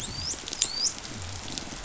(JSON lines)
{"label": "biophony, dolphin", "recorder": "SoundTrap 500"}